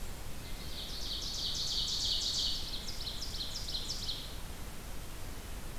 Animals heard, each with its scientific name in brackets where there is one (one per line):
Ovenbird (Seiurus aurocapilla)